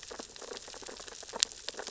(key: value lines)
label: biophony, sea urchins (Echinidae)
recorder: SoundTrap 600 or HydroMoth